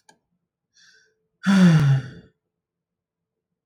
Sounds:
Sigh